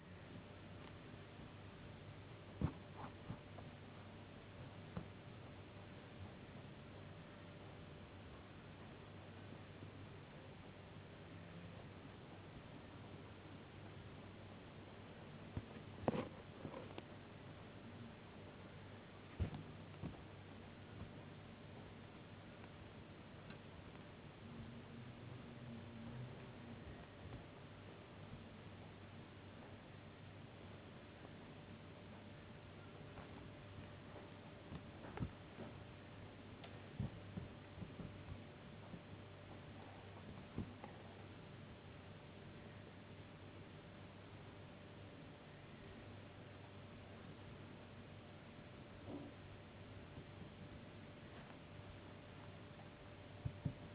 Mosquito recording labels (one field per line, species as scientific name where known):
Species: no mosquito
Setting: insect culture